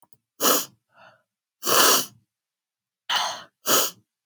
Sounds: Sniff